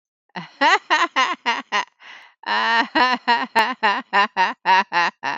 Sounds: Laughter